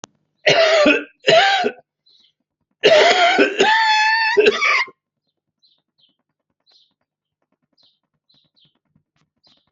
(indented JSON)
{
  "expert_labels": [
    {
      "quality": "good",
      "cough_type": "unknown",
      "dyspnea": false,
      "wheezing": true,
      "stridor": false,
      "choking": false,
      "congestion": false,
      "nothing": false,
      "diagnosis": "COVID-19",
      "severity": "mild"
    }
  ],
  "age": 55,
  "gender": "male",
  "respiratory_condition": false,
  "fever_muscle_pain": false,
  "status": "healthy"
}